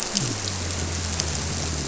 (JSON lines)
{"label": "biophony", "recorder": "SoundTrap 300"}